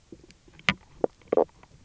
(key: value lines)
label: biophony, knock croak
recorder: SoundTrap 300